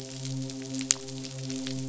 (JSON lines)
{"label": "biophony, midshipman", "recorder": "SoundTrap 500"}